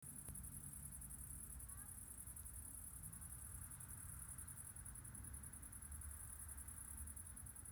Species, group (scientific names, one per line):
Tettigonia viridissima
Orthoptera